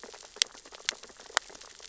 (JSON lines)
{"label": "biophony, sea urchins (Echinidae)", "recorder": "SoundTrap 600 or HydroMoth"}